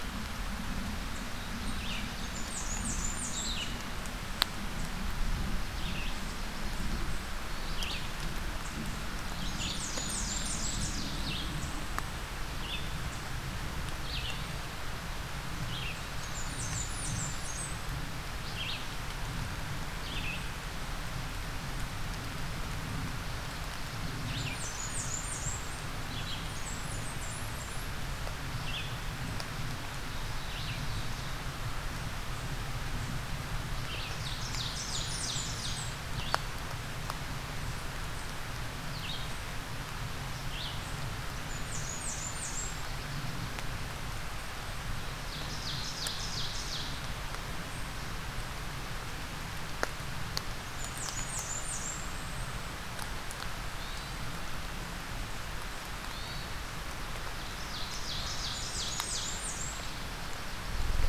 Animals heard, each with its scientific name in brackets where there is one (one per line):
Hermit Thrush (Catharus guttatus)
Blackburnian Warbler (Setophaga fusca)
Ovenbird (Seiurus aurocapilla)
Red-eyed Vireo (Vireo olivaceus)